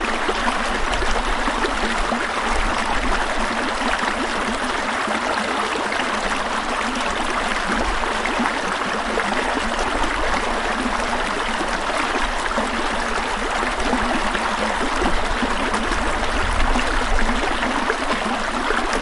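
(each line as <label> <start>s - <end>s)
A river flowing with the sound of rushing water. 0.0s - 19.0s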